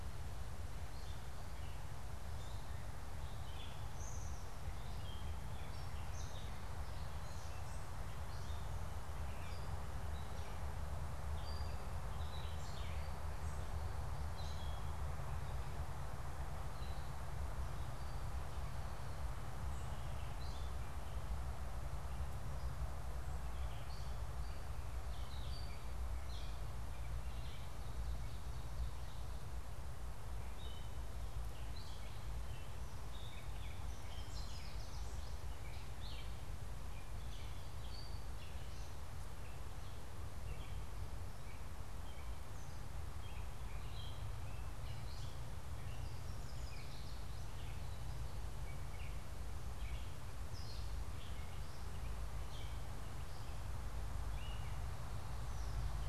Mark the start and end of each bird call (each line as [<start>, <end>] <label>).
[0.00, 56.03] Gray Catbird (Dumetella carolinensis)
[33.83, 35.33] Yellow Warbler (Setophaga petechia)
[46.13, 47.73] Yellow Warbler (Setophaga petechia)